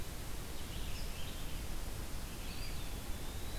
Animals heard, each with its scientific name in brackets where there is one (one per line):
Eastern Wood-Pewee (Contopus virens)
Red-eyed Vireo (Vireo olivaceus)